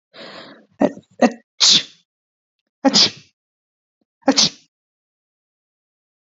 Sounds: Sneeze